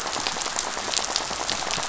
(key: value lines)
label: biophony, rattle
recorder: SoundTrap 500